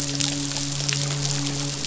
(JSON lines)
{"label": "biophony, midshipman", "recorder": "SoundTrap 500"}